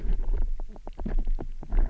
{"label": "biophony, knock", "recorder": "SoundTrap 300"}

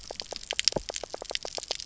{"label": "biophony, knock croak", "recorder": "SoundTrap 300"}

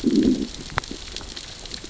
{"label": "biophony, growl", "recorder": "SoundTrap 600 or HydroMoth"}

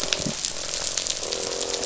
{"label": "biophony, croak", "recorder": "SoundTrap 500"}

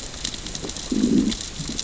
{"label": "biophony, growl", "recorder": "SoundTrap 600 or HydroMoth"}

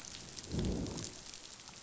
{"label": "biophony, growl", "recorder": "SoundTrap 500"}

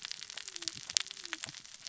{"label": "biophony, cascading saw", "recorder": "SoundTrap 600 or HydroMoth"}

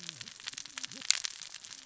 {"label": "biophony, cascading saw", "recorder": "SoundTrap 600 or HydroMoth"}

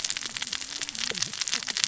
{"label": "biophony, cascading saw", "recorder": "SoundTrap 600 or HydroMoth"}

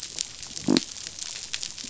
{"label": "biophony", "recorder": "SoundTrap 500"}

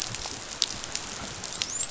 {"label": "biophony, dolphin", "recorder": "SoundTrap 500"}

